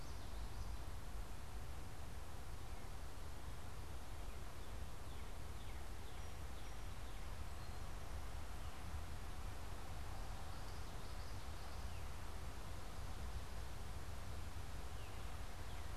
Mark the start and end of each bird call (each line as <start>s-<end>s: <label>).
4.7s-8.0s: Northern Cardinal (Cardinalis cardinalis)
10.1s-12.1s: Common Yellowthroat (Geothlypis trichas)
11.7s-16.0s: Northern Cardinal (Cardinalis cardinalis)